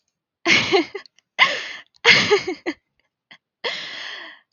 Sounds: Laughter